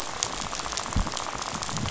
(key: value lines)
label: biophony, rattle
recorder: SoundTrap 500